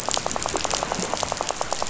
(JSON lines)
{"label": "biophony, rattle", "recorder": "SoundTrap 500"}